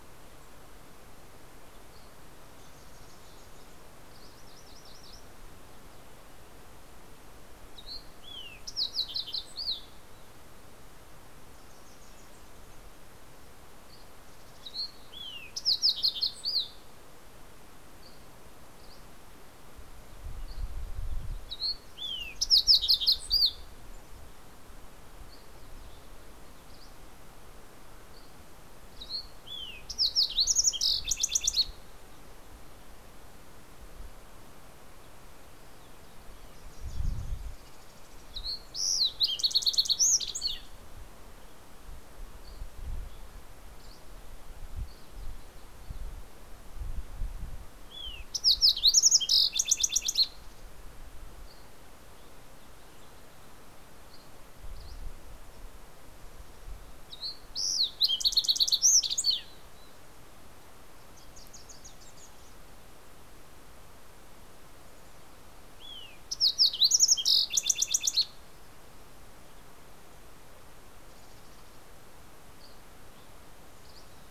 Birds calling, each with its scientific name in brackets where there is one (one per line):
Wilson's Warbler (Cardellina pusilla)
Mountain Chickadee (Poecile gambeli)
MacGillivray's Warbler (Geothlypis tolmiei)
Dusky Flycatcher (Empidonax oberholseri)
Fox Sparrow (Passerella iliaca)